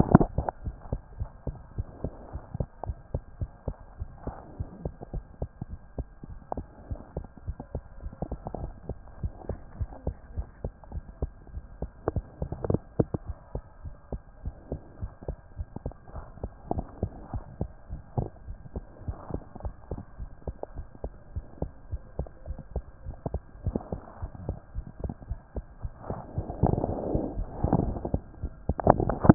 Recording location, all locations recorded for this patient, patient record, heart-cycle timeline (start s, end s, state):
mitral valve (MV)
aortic valve (AV)+pulmonary valve (PV)+tricuspid valve (TV)+mitral valve (MV)
#Age: Child
#Sex: Female
#Height: 88.0 cm
#Weight: 13.1 kg
#Pregnancy status: False
#Murmur: Absent
#Murmur locations: nan
#Most audible location: nan
#Systolic murmur timing: nan
#Systolic murmur shape: nan
#Systolic murmur grading: nan
#Systolic murmur pitch: nan
#Systolic murmur quality: nan
#Diastolic murmur timing: nan
#Diastolic murmur shape: nan
#Diastolic murmur grading: nan
#Diastolic murmur pitch: nan
#Diastolic murmur quality: nan
#Outcome: Abnormal
#Campaign: 2014 screening campaign
0.00	0.64	unannotated
0.64	0.78	S1
0.78	0.90	systole
0.90	1.00	S2
1.00	1.18	diastole
1.18	1.28	S1
1.28	1.44	systole
1.44	1.56	S2
1.56	1.72	diastole
1.72	1.86	S1
1.86	2.00	systole
2.00	2.12	S2
2.12	2.32	diastole
2.32	2.42	S1
2.42	2.54	systole
2.54	2.68	S2
2.68	2.86	diastole
2.86	3.00	S1
3.00	3.14	systole
3.14	3.22	S2
3.22	3.40	diastole
3.40	3.50	S1
3.50	3.64	systole
3.64	3.74	S2
3.74	3.98	diastole
3.98	4.08	S1
4.08	4.24	systole
4.24	4.36	S2
4.36	4.58	diastole
4.58	4.68	S1
4.68	4.82	systole
4.82	4.94	S2
4.94	5.14	diastole
5.14	5.24	S1
5.24	5.38	systole
5.38	5.48	S2
5.48	5.70	diastole
5.70	5.80	S1
5.80	5.98	systole
5.98	6.08	S2
6.08	6.30	diastole
6.30	6.38	S1
6.38	6.56	systole
6.56	6.66	S2
6.66	6.90	diastole
6.90	7.00	S1
7.00	7.16	systole
7.16	7.26	S2
7.26	7.46	diastole
7.46	7.56	S1
7.56	7.72	systole
7.72	7.82	S2
7.82	8.04	diastole
8.04	8.14	S1
8.14	8.30	systole
8.30	8.40	S2
8.40	8.58	diastole
8.58	8.74	S1
8.74	8.88	systole
8.88	8.98	S2
8.98	9.18	diastole
9.18	9.32	S1
9.32	9.48	systole
9.48	9.58	S2
9.58	9.76	diastole
9.76	9.90	S1
9.90	10.06	systole
10.06	10.16	S2
10.16	10.34	diastole
10.34	10.46	S1
10.46	10.62	systole
10.62	10.72	S2
10.72	10.92	diastole
10.92	11.04	S1
11.04	11.20	systole
11.20	11.34	S2
11.34	11.54	diastole
11.54	11.64	S1
11.64	11.80	systole
11.80	11.90	S2
11.90	12.08	diastole
12.08	12.26	S1
12.26	12.40	systole
12.40	12.50	S2
12.50	12.66	diastole
12.66	12.82	S1
12.82	12.98	systole
12.98	13.08	S2
13.08	13.28	diastole
13.28	13.38	S1
13.38	13.54	systole
13.54	13.64	S2
13.64	13.84	diastole
13.84	13.94	S1
13.94	14.12	systole
14.12	14.22	S2
14.22	14.44	diastole
14.44	14.56	S1
14.56	14.70	systole
14.70	14.80	S2
14.80	15.00	diastole
15.00	15.12	S1
15.12	15.28	systole
15.28	15.38	S2
15.38	15.58	diastole
15.58	15.68	S1
15.68	15.82	systole
15.82	15.94	S2
15.94	16.16	diastole
16.16	16.26	S1
16.26	16.42	systole
16.42	16.52	S2
16.52	16.70	diastole
16.70	16.86	S1
16.86	16.98	systole
16.98	17.10	S2
17.10	17.30	diastole
17.30	17.44	S1
17.44	17.60	systole
17.60	17.74	S2
17.74	17.92	diastole
17.92	18.02	S1
18.02	18.14	systole
18.14	18.28	S2
18.28	18.48	diastole
18.48	18.58	S1
18.58	18.76	systole
18.76	18.86	S2
18.86	19.04	diastole
19.04	19.18	S1
19.18	19.30	systole
19.30	19.42	S2
19.42	19.60	diastole
19.60	19.72	S1
19.72	19.90	systole
19.90	20.00	S2
20.00	20.20	diastole
20.20	20.30	S1
20.30	20.48	systole
20.48	20.58	S2
20.58	20.76	diastole
20.76	20.88	S1
20.88	21.04	systole
21.04	21.14	S2
21.14	21.32	diastole
21.32	21.44	S1
21.44	21.58	systole
21.58	21.72	S2
21.72	21.92	diastole
21.92	22.04	S1
22.04	22.18	systole
22.18	22.30	S2
22.30	22.48	diastole
22.48	22.60	S1
22.60	22.72	systole
22.72	22.86	S2
22.86	23.06	diastole
23.06	23.18	S1
23.18	23.32	systole
23.32	23.44	S2
23.44	23.64	diastole
23.64	23.82	S1
23.82	23.92	systole
23.92	24.02	S2
24.02	24.22	diastole
24.22	24.32	S1
24.32	24.46	systole
24.46	24.58	S2
24.58	24.74	diastole
24.74	24.88	S1
24.88	25.00	systole
25.00	25.14	S2
25.14	25.30	diastole
25.30	25.40	S1
25.40	25.56	systole
25.56	25.66	S2
25.66	25.84	diastole
25.84	25.94	S1
25.94	26.06	systole
26.06	26.18	S2
26.18	26.28	diastole
26.28	29.34	unannotated